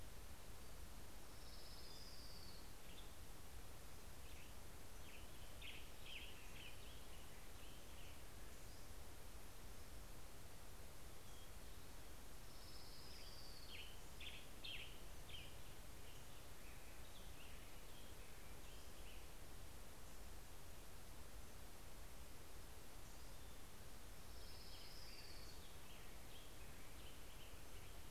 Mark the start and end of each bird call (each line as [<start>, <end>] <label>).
[0.30, 4.50] Orange-crowned Warbler (Leiothlypis celata)
[4.50, 7.10] Western Tanager (Piranga ludoviciana)
[11.70, 15.20] Orange-crowned Warbler (Leiothlypis celata)
[13.10, 16.90] Western Tanager (Piranga ludoviciana)
[16.70, 20.50] American Robin (Turdus migratorius)
[23.00, 27.00] Orange-crowned Warbler (Leiothlypis celata)
[24.10, 28.10] American Robin (Turdus migratorius)